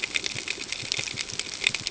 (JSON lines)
{"label": "ambient", "recorder": "HydroMoth"}